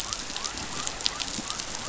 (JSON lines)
{"label": "biophony", "recorder": "SoundTrap 500"}